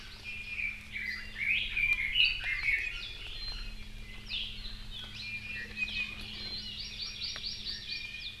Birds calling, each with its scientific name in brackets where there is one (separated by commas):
Hawaii Amakihi (Chlorodrepanis virens), Iiwi (Drepanis coccinea), Red-billed Leiothrix (Leiothrix lutea)